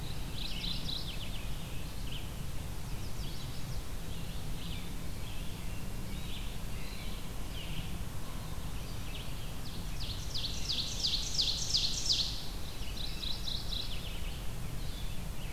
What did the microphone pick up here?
Mourning Warbler, Red-eyed Vireo, Chestnut-sided Warbler, Ovenbird